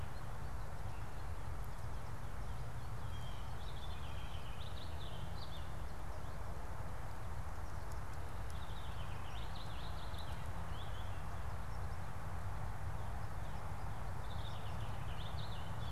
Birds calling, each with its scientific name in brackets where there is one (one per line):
Purple Finch (Haemorhous purpureus)